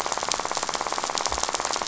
{"label": "biophony, rattle", "recorder": "SoundTrap 500"}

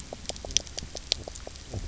{"label": "biophony, knock croak", "recorder": "SoundTrap 300"}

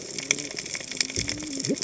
{"label": "biophony, cascading saw", "recorder": "HydroMoth"}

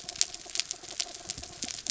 {"label": "anthrophony, mechanical", "recorder": "SoundTrap 300"}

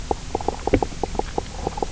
{"label": "biophony, knock croak", "recorder": "SoundTrap 300"}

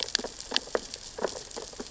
{"label": "biophony, sea urchins (Echinidae)", "recorder": "SoundTrap 600 or HydroMoth"}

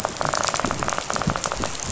{"label": "biophony, rattle", "recorder": "SoundTrap 500"}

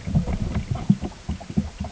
{"label": "ambient", "recorder": "HydroMoth"}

